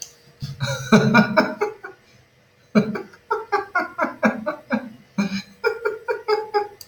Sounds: Laughter